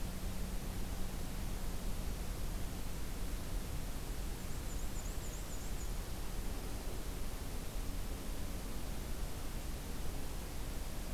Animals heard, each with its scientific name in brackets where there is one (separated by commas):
Black-and-white Warbler (Mniotilta varia)